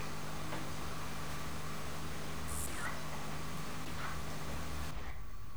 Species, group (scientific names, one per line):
Acrometopa macropoda
Orthoptera